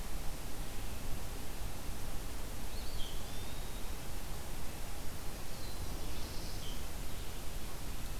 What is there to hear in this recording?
Eastern Wood-Pewee, Black-throated Blue Warbler